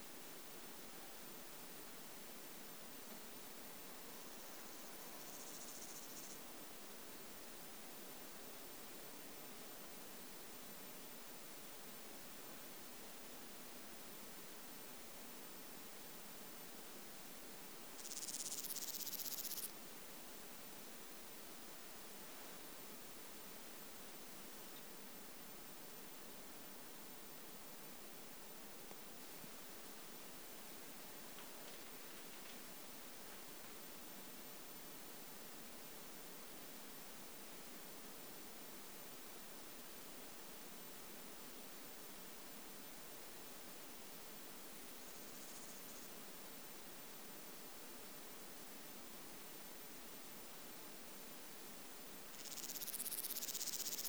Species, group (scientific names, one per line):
Stenobothrus stigmaticus
Orthoptera